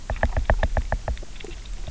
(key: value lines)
label: biophony, knock
recorder: SoundTrap 300